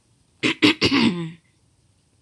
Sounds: Throat clearing